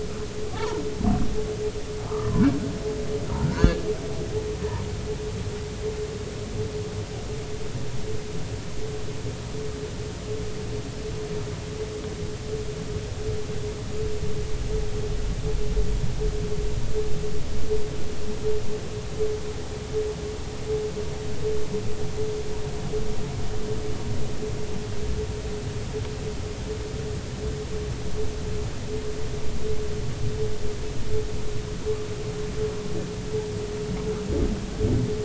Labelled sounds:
0.4	0.8	humpback whale, 0.80 to 1.5 kHz
2.1	2.3	humpback whale, 0.99 to 1.3 kHz
3.4	3.8	humpback whale, 1.3 to 4.6 kHz

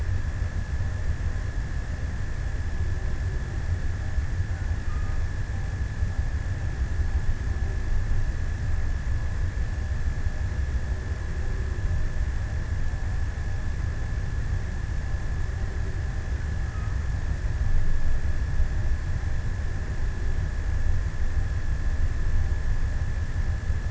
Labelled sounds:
4.3	5.5	killer whale, offshore, 0.78 to 1.7 kHz

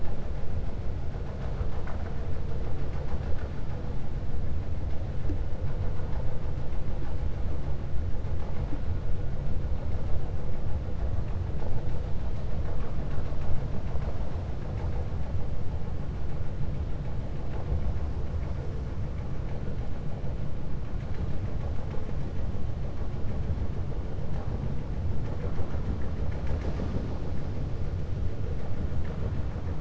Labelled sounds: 1.3	2.2	vessel noise, 0.61 to 2.5 kHz

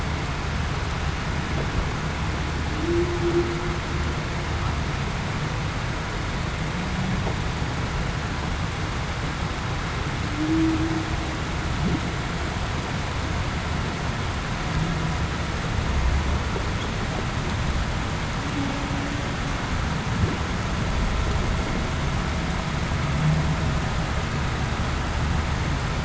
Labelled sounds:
2.7	3.2	humpback whale, 0.28 to 0.40 kHz
10.3	10.9	humpback whale, 0.28 to 0.40 kHz

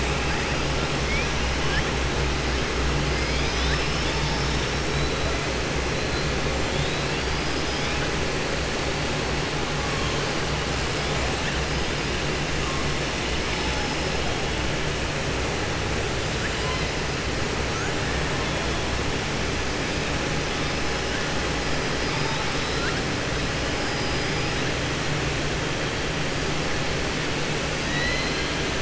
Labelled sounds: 27.8	28.6	killer whale, southern resident, 1.8 to 4.8 kHz

